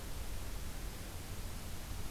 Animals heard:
forest ambience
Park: Acadia National Park